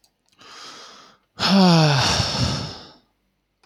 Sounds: Sigh